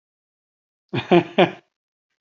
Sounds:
Laughter